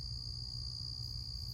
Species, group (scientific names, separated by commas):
Gryllus rubens, Orthoptera